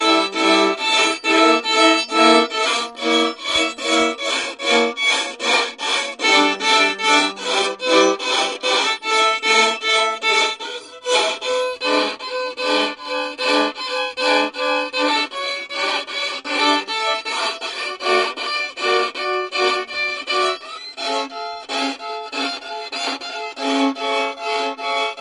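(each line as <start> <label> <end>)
0.0 An unsettling sound made by a violin indoors. 25.2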